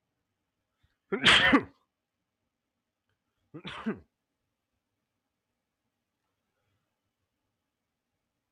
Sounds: Sneeze